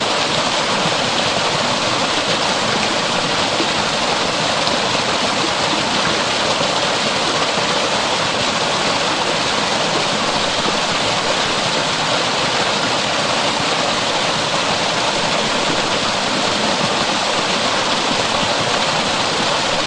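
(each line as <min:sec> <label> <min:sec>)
0:00.0 Water flows wildly, splashing on rocks in a river. 0:19.9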